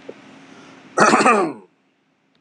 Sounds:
Throat clearing